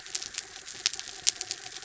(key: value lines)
label: anthrophony, mechanical
recorder: SoundTrap 300